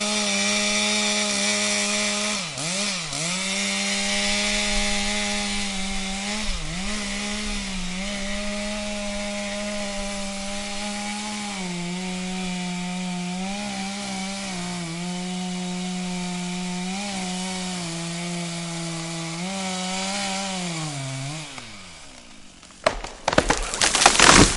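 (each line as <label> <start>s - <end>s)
A chainsaw buzzes and grinds continuously at mid-volume while cutting wood. 0.0s - 22.8s
A short, sharp cracking sound of wood breaking. 22.8s - 24.6s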